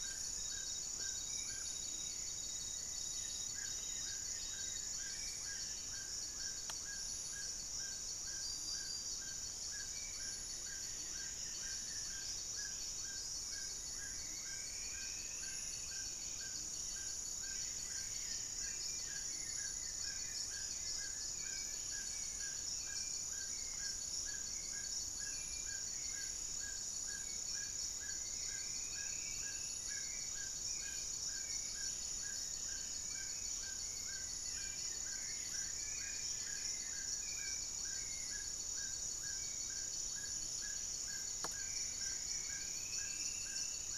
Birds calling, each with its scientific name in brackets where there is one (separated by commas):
Goeldi's Antbird (Akletos goeldii), Plain-winged Antshrike (Thamnophilus schistaceus), Buff-throated Woodcreeper (Xiphorhynchus guttatus), Horned Screamer (Anhima cornuta), Spot-winged Antshrike (Pygiptila stellaris), Undulated Tinamou (Crypturellus undulatus), Amazonian Motmot (Momotus momota), Black-faced Antthrush (Formicarius analis), Buff-breasted Wren (Cantorchilus leucotis), Striped Woodcreeper (Xiphorhynchus obsoletus), Hauxwell's Thrush (Turdus hauxwelli), Amazonian Trogon (Trogon ramonianus)